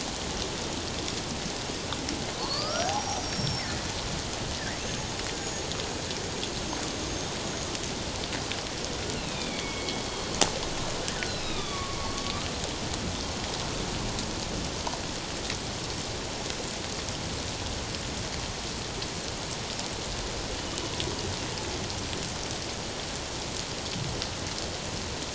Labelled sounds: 5.4	5.7	killer whale, 6.6 to 6.9 kHz
6.4	6.8	killer whale, 6.3 to 6.6 kHz
7.4	7.6	killer whale, 6.5 to 6.7 kHz
9.1	10.3	killer whale, northern resident, A clan, AA subclan, call N04, 2.1 to 3.9 kHz
11.3	12.0	killer whale, northern resident, A clan, AA subclan, call N04, 1.1 to 4.2 kHz

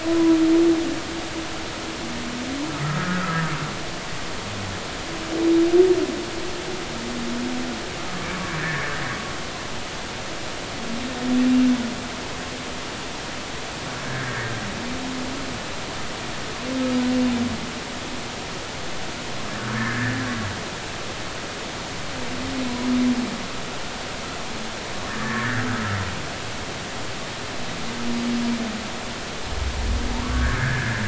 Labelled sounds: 0.1	0.4	humpback whale, 0.96 to 1.1 kHz
2.8	3.4	humpback whale, 1.2 to 1.7 kHz
8.6	8.8	humpback whale, 1.6 to 2.0 kHz
14.0	14.6	humpback whale, 1.5 to 1.9 kHz
19.8	20.3	humpback whale, 1.5 to 1.9 kHz
25.1	25.7	humpback whale, 1.1 to 1.9 kHz
30.2	31.0	humpback whale, 1.0 to 1.9 kHz

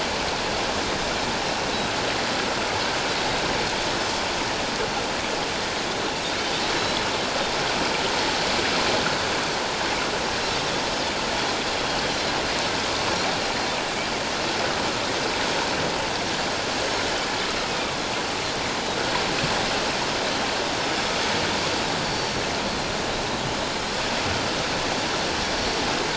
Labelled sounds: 16.7	17.0	Pacific white-sided dolphin, 6.3 to 6.6 kHz
17.7	18.0	Pacific white-sided dolphin, 2.2 to 2.6 kHz
22.0	22.4	Pacific white-sided dolphin, 4.4 to 5.7 kHz
25.4	25.7	Pacific white-sided dolphin, 5.5 to 5.6 kHz

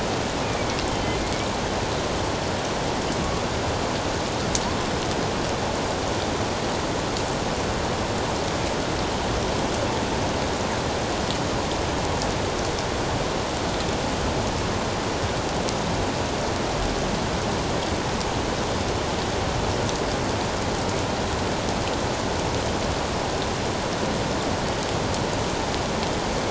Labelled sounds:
0.4	1.5	killer whale, northern resident, A clan, AA subclan, 2.1 to 3.2 kHz

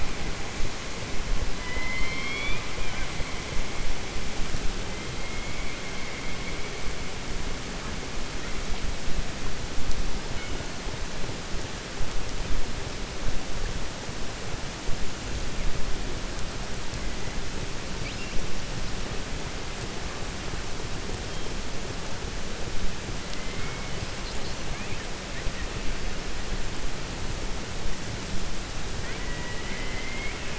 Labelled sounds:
1.5	2.7	killer whale, 1.0 to 5.3 kHz
29.0	30.5	killer whale, 0.99 to 3.2 kHz

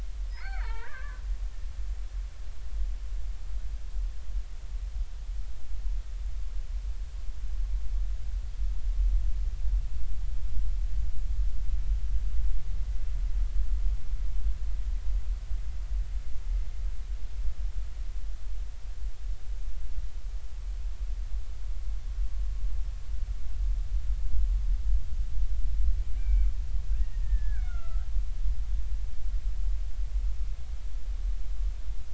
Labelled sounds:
0.3	1.2	killer whale, Bigg's (transient), 0.83 to 4.5 kHz
26.2	28.1	killer whale, Bigg's (transient), 1.2 to 2.9 kHz

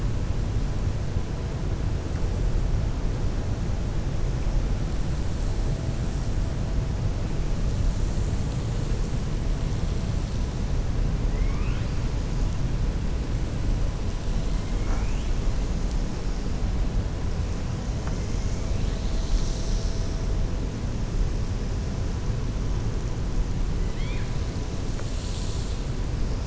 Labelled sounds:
11.2	11.9	killer whale, 1.1 to 3.3 kHz
23.8	24.3	killer whale, 1.6 to 4.5 kHz

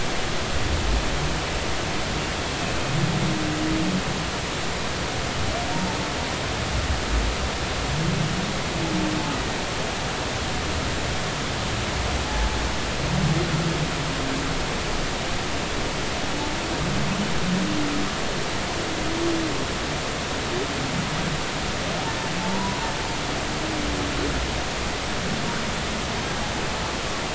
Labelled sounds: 5.7	6.0	humpback whale, 0.83 to 0.96 kHz
12.2	12.5	humpback whale, 0.80 to 0.90 kHz
22.4	22.8	humpback whale, 0.83 to 1.0 kHz

